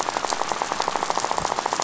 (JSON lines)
{"label": "biophony, rattle", "recorder": "SoundTrap 500"}